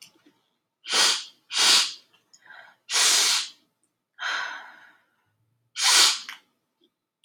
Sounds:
Sniff